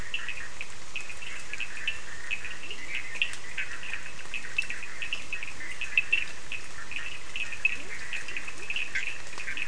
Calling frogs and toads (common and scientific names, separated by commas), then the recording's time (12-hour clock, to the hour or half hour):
Bischoff's tree frog (Boana bischoffi), Cochran's lime tree frog (Sphaenorhynchus surdus), Leptodactylus latrans
10:30pm